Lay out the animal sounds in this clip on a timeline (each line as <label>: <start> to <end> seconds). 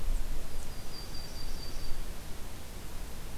Yellow-rumped Warbler (Setophaga coronata): 0.4 to 2.1 seconds